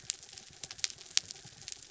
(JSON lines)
{"label": "anthrophony, mechanical", "recorder": "SoundTrap 300"}